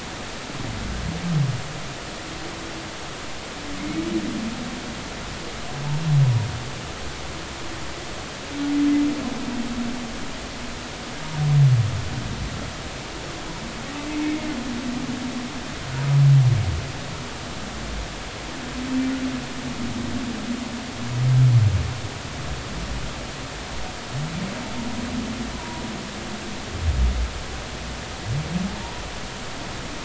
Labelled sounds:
3.8	4.0	humpback whale, 2.1 to 2.3 kHz
14.2	14.5	humpback whale, 2.1 to 2.3 kHz
25.5	25.8	humpback whale, 0.90 to 1.1 kHz

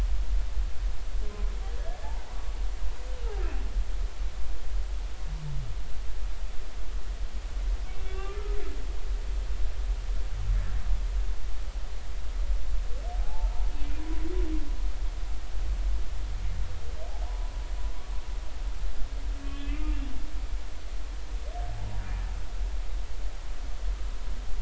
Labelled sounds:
2.3	2.5	humpback whale, 0.83 to 1.2 kHz
8.0	8.4	humpback whale, 1.1 to 3.6 kHz
13.2	13.5	humpback whale, 0.80 to 0.96 kHz
17.2	17.5	humpback whale, 0.83 to 1.1 kHz
19.4	20.0	humpback whale, 2.3 to 3.2 kHz

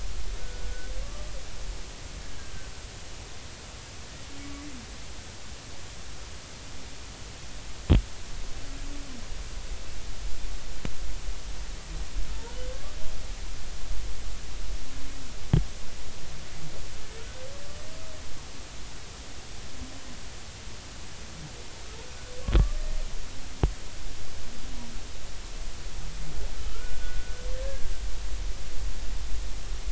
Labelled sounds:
0.4	0.9	humpback whale, 1.4 to 1.6 kHz
12.7	13.0	humpback whale, 1.1 to 1.2 kHz
26.7	27.3	humpback whale, 1.2 to 1.5 kHz
27.6	27.9	humpback whale, 1.5 to 1.7 kHz

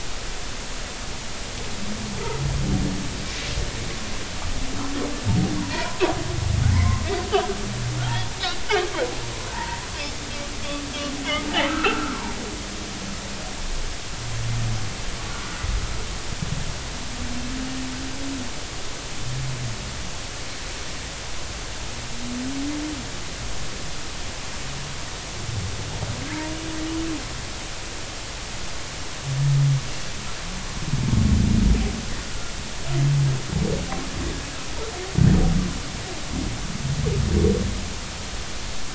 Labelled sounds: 5.6	6.0	humpback whale, 0.90 to 1.1 kHz
6.7	7.0	humpback whale, 0.90 to 2.3 kHz
8.0	8.3	humpback whale, 3.1 to 3.4 kHz
9.5	9.8	humpback whale, 0.83 to 2.0 kHz
11.7	12.3	humpback whale, 0.80 to 1.6 kHz

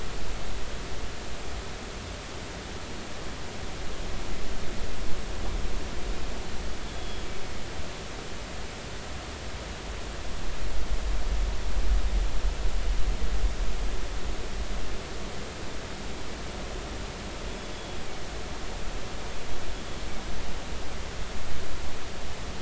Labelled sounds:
6.8	7.2	killer whale, northern resident, G clan, GG subclan, call N23ii, 3.3 to 3.5 kHz
17.7	18.0	killer whale, northern resident, G clan, GG subclan, call N23ii, 3.3 to 3.5 kHz

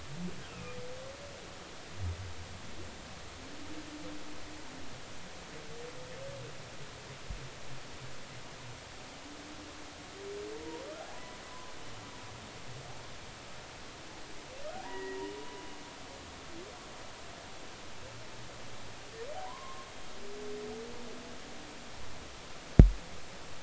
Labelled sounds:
0.4	0.8	humpback whale, 1.2 to 2.8 kHz
11.1	11.4	humpback whale, 0.96 to 1.0 kHz
14.8	15.2	humpback whale, 0.90 to 2.0 kHz
19.5	19.9	humpback whale, 0.90 to 1.1 kHz

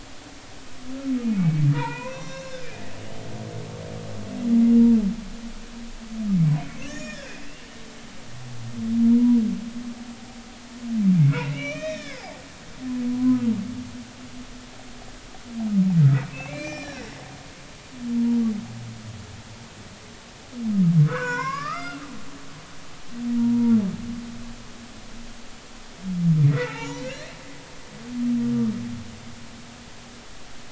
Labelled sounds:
1.3	3.0	humpback whale, 0.83 to 6.9 kHz
6.6	7.5	humpback whale, 1.5 to 7.4 kHz
7.9	8.2	humpback whale, 2.3 to 2.5 kHz
11.2	12.4	humpback whale, 1.1 to 6.4 kHz
13.1	13.4	humpback whale, 0.96 to 1.1 kHz
16.3	17.0	humpback whale, 1.5 to 7.3 kHz
18.2	18.4	humpback whale, 0.90 to 0.99 kHz
21.1	22.0	humpback whale, 0.90 to 5.6 kHz
23.4	23.8	humpback whale, 0.86 to 0.99 kHz
26.5	27.4	humpback whale, 0.83 to 7.2 kHz

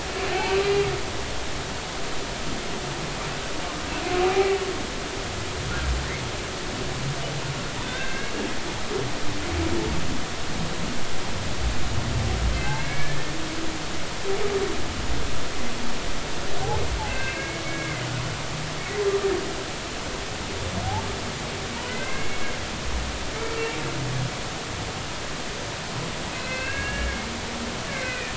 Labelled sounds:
0.6	0.8	humpback whale, 3.9 to 4.1 kHz
7.8	8.4	humpback whale, 1.5 to 3.7 kHz
12.5	13.2	humpback whale, 1.5 to 2.4 kHz
17.1	18.0	humpback whale, 1.5 to 2.8 kHz
21.9	22.5	humpback whale, 1.5 to 2.3 kHz
26.3	27.3	humpback whale, 1.5 to 2.8 kHz
27.9	28.3	humpback whale, 1.7 to 2.6 kHz

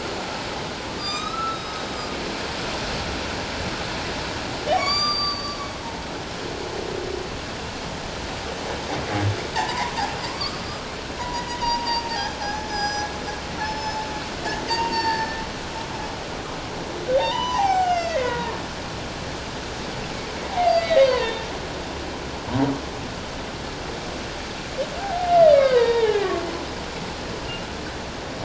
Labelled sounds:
1.0	1.8	humpback whale, 2.3 to 7.6 kHz
4.7	5.7	humpback whale, 1.1 to 7.2 kHz
9.6	10.9	humpback whale, 0.78 to 1.4 kHz
11.2	13.1	humpback whale, 0.78 to 7.6 kHz
13.6	14.1	humpback whale, 0.84 to 5.3 kHz
14.7	15.4	humpback whale, 0.84 to 4.7 kHz
17.1	18.6	humpback whale, 0.78 to 7.6 kHz
20.5	21.4	humpback whale, 0.78 to 4.8 kHz
25.0	26.4	humpback whale, 0.78 to 4.8 kHz

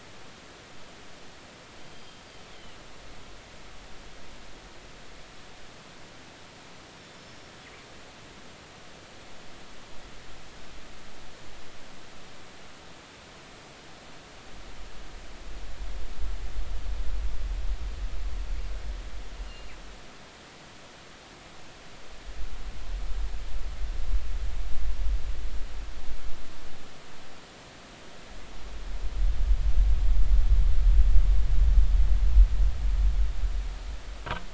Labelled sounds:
1.9	2.2	killer whale, northern resident, G clan, GG subclan, call N23ii, 3.1 to 3.2 kHz
19.5	19.7	killer whale, northern resident, G clan, GG subclan, call N23ii, 2.8 to 2.9 kHz

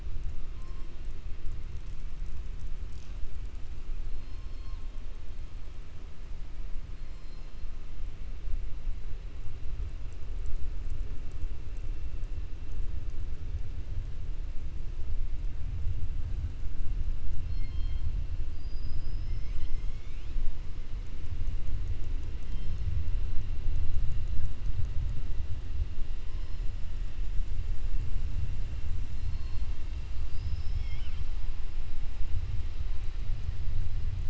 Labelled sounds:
4.1	4.8	killer whale, 3.2 to 5.4 kHz
17.4	18.1	killer whale, 2.1 to 5.3 kHz
29.1	29.7	killer whale, 4.0 to 5.2 kHz
30.2	31.3	killer whale, 1.5 to 5.6 kHz

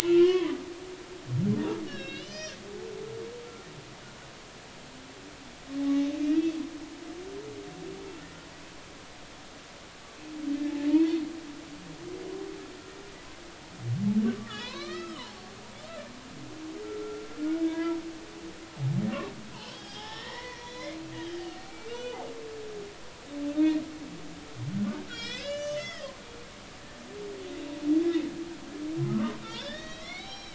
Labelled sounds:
0.0	0.6	humpback whale, 0.93 to 3.4 kHz
1.9	2.6	humpback whale, 1.5 to 5.7 kHz
5.8	6.1	humpback whale, 0.80 to 0.90 kHz
10.9	11.2	humpback whale, 0.86 to 1.0 kHz
14.2	15.3	humpback whale, 0.80 to 4.5 kHz
16.8	18.0	humpback whale, 0.90 to 1.7 kHz
19.5	21.0	humpback whale, 0.80 to 5.5 kHz
21.4	22.2	humpback whale, 1.4 to 4.4 kHz
24.8	26.1	humpback whale, 1.3 to 7.7 kHz
29.1	30.5	humpback whale, 0.80 to 6.4 kHz

